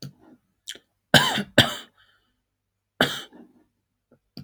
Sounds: Cough